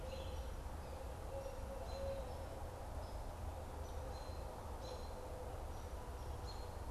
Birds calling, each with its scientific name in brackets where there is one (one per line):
Barred Owl (Strix varia)
American Robin (Turdus migratorius)